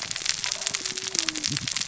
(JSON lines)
{"label": "biophony, cascading saw", "recorder": "SoundTrap 600 or HydroMoth"}